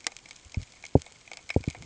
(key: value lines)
label: ambient
recorder: HydroMoth